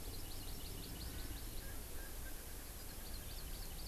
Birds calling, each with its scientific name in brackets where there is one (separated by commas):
Hawaii Amakihi (Chlorodrepanis virens), Erckel's Francolin (Pternistis erckelii)